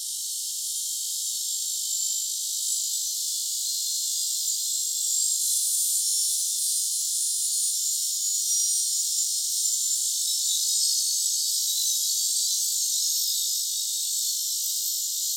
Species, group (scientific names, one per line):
Neotibicen canicularis
Cicadidae